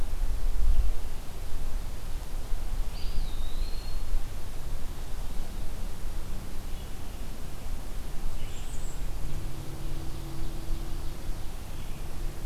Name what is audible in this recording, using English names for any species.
Red-eyed Vireo, Eastern Wood-Pewee, Bay-breasted Warbler, Ovenbird